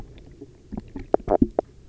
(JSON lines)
{"label": "biophony, stridulation", "recorder": "SoundTrap 300"}